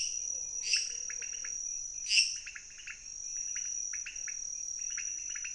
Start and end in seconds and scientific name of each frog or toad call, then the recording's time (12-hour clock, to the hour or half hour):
0.0	2.5	Dendropsophus minutus
0.0	5.5	Leptodactylus podicipinus
11pm